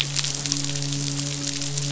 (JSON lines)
{"label": "biophony, midshipman", "recorder": "SoundTrap 500"}